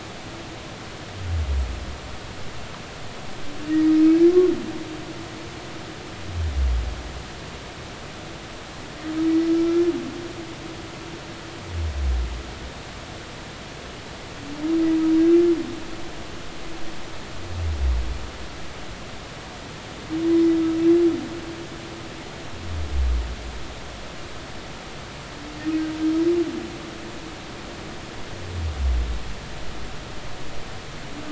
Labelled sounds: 9.5	9.8	humpback whale, 1.3 to 1.4 kHz

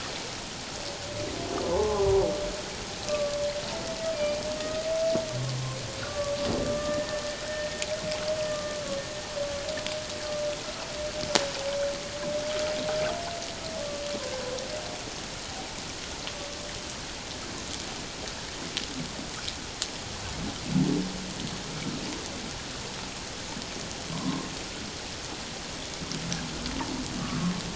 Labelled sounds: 1.7	3.3	humpback whale, 0.78 to 1.2 kHz
6.0	7.8	humpback whale, 1.1 to 1.9 kHz
8.5	8.8	humpback whale, 1.1 to 1.2 kHz
24.1	24.5	humpback whale, 0.94 to 1.2 kHz

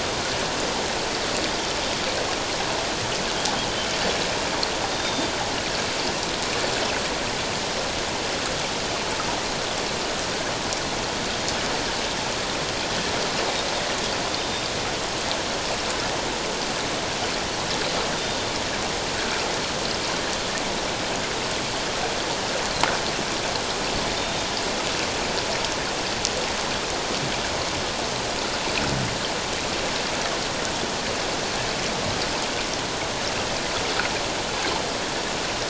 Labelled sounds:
4.9	5.3	Pacific white-sided dolphin, 3.5 to 3.7 kHz
14.4	14.6	Pacific white-sided dolphin, 3.6 to 3.7 kHz
18.2	18.5	Pacific white-sided dolphin, 3.5 to 3.7 kHz

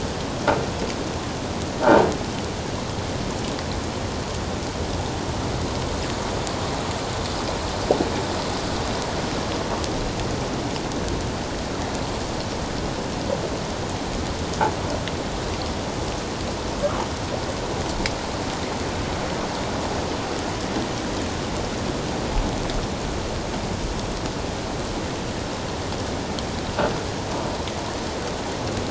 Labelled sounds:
1.8	2.1	croaking sound likely from a nearby submerged object, 0.78 to 0.97 kHz

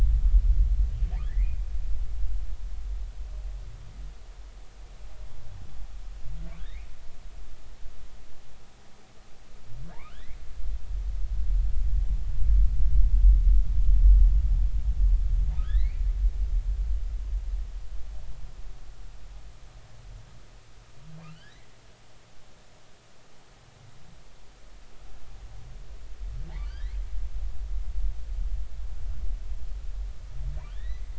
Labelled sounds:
1.3	1.6	humpback whale, 1.6 to 2.6 kHz
6.6	6.9	humpback whale, 1.5 to 2.5 kHz
9.9	10.4	humpback whale, 0.83 to 4.1 kHz
15.6	16.0	humpback whale, 1.2 to 4.6 kHz
21.2	21.7	humpback whale, 1.1 to 3.4 kHz
26.6	27.0	humpback whale, 1.4 to 2.3 kHz
30.7	31.1	humpback whale, 1.7 to 4.1 kHz

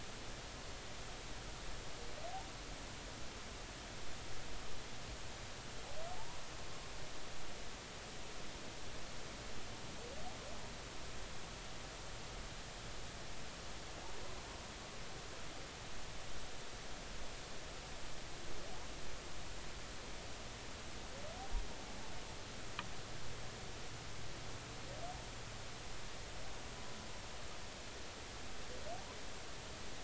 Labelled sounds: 6.2	6.4	humpback whale, 0.83 to 1.1 kHz

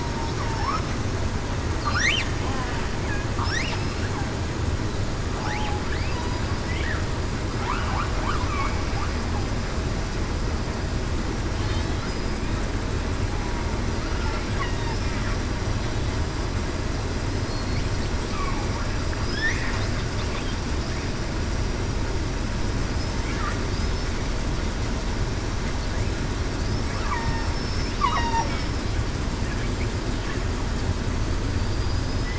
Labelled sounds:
0.5	0.8	killer whale, southern resident, 0.82 to 1.4 kHz
5.4	5.8	killer whale, southern resident, 0.77 to 0.89 kHz
17.4	17.8	killer whale, southern resident, 4.2 to 4.5 kHz
27.2	28.4	killer whale, southern resident, 2.7 to 5.4 kHz
31.7	32.3	killer whale, southern resident, 4.7 to 5.2 kHz

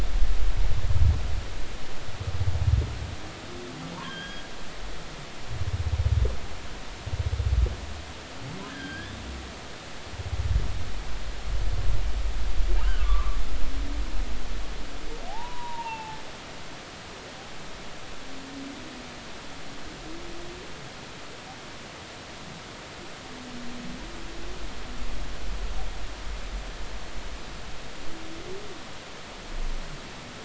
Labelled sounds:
4.0	4.4	humpback whale, 1.5 to 3.4 kHz
8.7	9.1	humpback whale, 1.5 to 3.4 kHz
12.8	13.4	humpback whale, 0.99 to 1.6 kHz
15.3	16.2	humpback whale, 0.80 to 2.8 kHz

